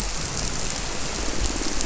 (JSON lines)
{"label": "biophony", "recorder": "SoundTrap 300"}